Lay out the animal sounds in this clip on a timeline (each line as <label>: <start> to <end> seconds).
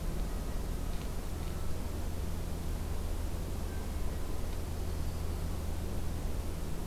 Yellow-rumped Warbler (Setophaga coronata): 4.4 to 5.5 seconds